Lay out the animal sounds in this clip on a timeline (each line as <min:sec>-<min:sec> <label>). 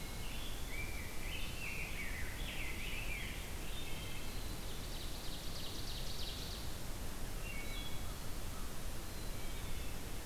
0:00.0-0:03.8 Rose-breasted Grosbeak (Pheucticus ludovicianus)
0:03.3-0:04.6 Wood Thrush (Hylocichla mustelina)
0:04.3-0:06.9 Ovenbird (Seiurus aurocapilla)
0:07.2-0:08.1 Wood Thrush (Hylocichla mustelina)
0:09.0-0:10.0 Black-capped Chickadee (Poecile atricapillus)